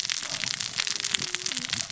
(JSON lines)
{"label": "biophony, cascading saw", "recorder": "SoundTrap 600 or HydroMoth"}